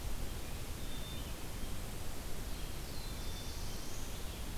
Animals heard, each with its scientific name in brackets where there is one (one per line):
Red-eyed Vireo (Vireo olivaceus)
Black-capped Chickadee (Poecile atricapillus)
Black-throated Blue Warbler (Setophaga caerulescens)